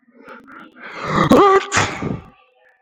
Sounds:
Sneeze